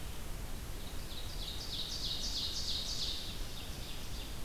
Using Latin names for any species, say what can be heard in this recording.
Seiurus aurocapilla